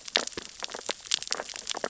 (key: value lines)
label: biophony, sea urchins (Echinidae)
recorder: SoundTrap 600 or HydroMoth